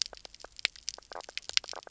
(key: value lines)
label: biophony, knock croak
recorder: SoundTrap 300